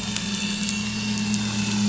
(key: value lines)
label: anthrophony, boat engine
recorder: SoundTrap 500